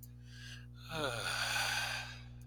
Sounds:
Sigh